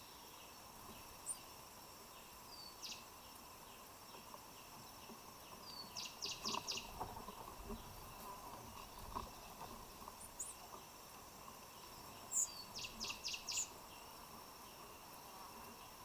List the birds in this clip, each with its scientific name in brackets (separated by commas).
White-eyed Slaty-Flycatcher (Melaenornis fischeri), Cinnamon Bracken-Warbler (Bradypterus cinnamomeus)